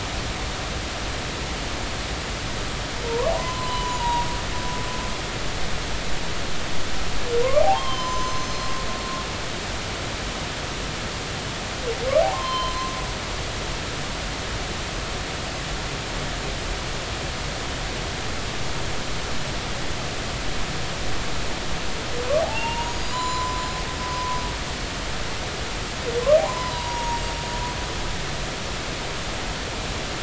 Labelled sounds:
3.0	4.3	humpback whale, 0.90 to 7.0 kHz
7.6	8.8	humpback whale, 0.80 to 6.3 kHz
12.2	12.9	humpback whale, 0.80 to 4.2 kHz
22.4	23.7	humpback whale, 0.80 to 7.1 kHz
24.1	24.4	humpback whale, 0.96 to 1.1 kHz
26.4	27.2	humpback whale, 0.80 to 5.0 kHz

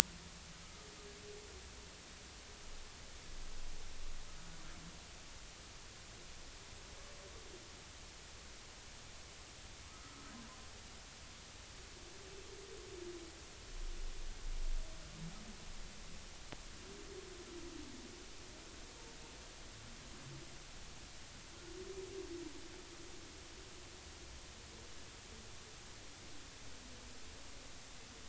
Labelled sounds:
9.9	10.3	humpback whale, 1.2 to 1.4 kHz

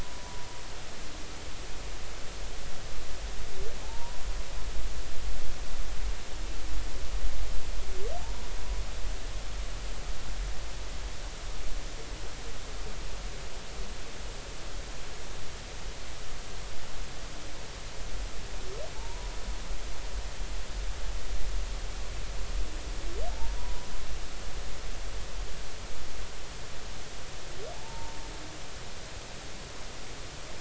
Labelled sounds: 3.8	4.2	humpback whale, 0.80 to 1.0 kHz
18.9	19.3	humpback whale, 0.83 to 1.0 kHz
23.3	23.9	humpback whale, 0.83 to 1.0 kHz
27.7	28.2	humpback whale, 0.83 to 0.96 kHz

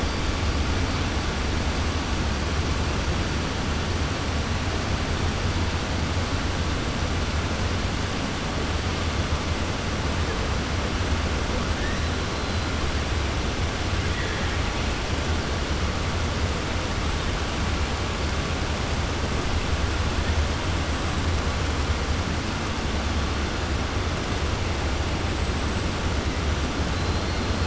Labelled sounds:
14.0	14.5	killer whale, 1.6 to 2.5 kHz

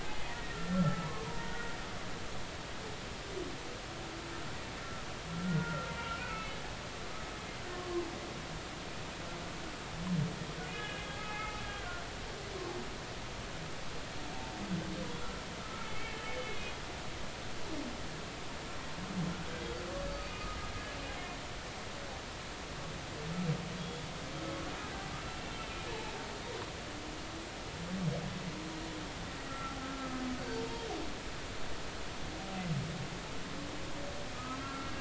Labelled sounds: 0.0	1.8	humpback whale, 0.80 to 2.1 kHz
5.3	5.9	humpback whale, 1.3 to 1.5 kHz
6.3	6.6	humpback whale, 2.1 to 2.7 kHz
7.7	8.1	humpback whale, 0.99 to 1.1 kHz
10.7	11.9	humpback whale, 1.5 to 3.0 kHz
15.6	16.7	humpback whale, 1.2 to 2.3 kHz
20.1	20.6	humpback whale, 1.2 to 4.6 kHz
23.8	24.1	humpback whale, 3.3 to 3.5 kHz
25.9	26.1	humpback whale, 0.83 to 0.96 kHz
29.5	30.9	humpback whale, 0.86 to 4.6 kHz
34.3	34.9	humpback whale, 1.2 to 1.4 kHz

